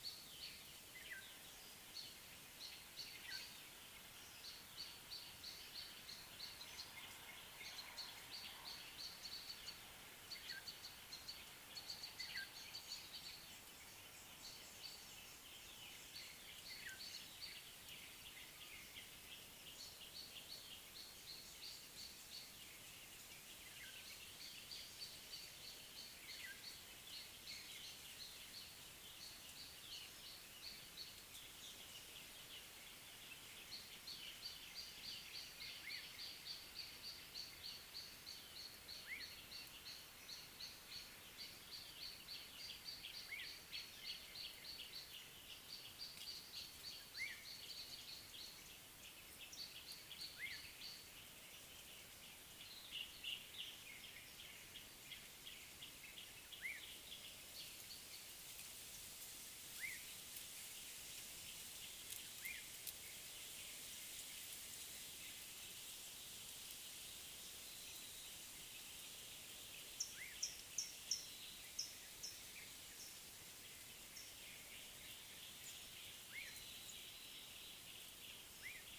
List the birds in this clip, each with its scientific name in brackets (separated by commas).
Gray Apalis (Apalis cinerea), Black-tailed Oriole (Oriolus percivali), Collared Sunbird (Hedydipna collaris)